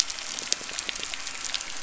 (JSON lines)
{"label": "anthrophony, boat engine", "recorder": "SoundTrap 300"}